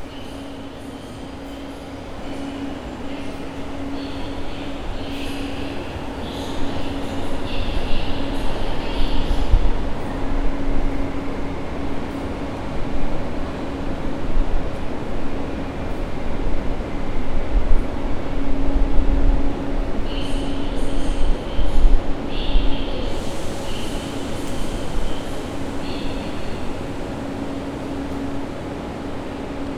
Is there a muffled sound?
yes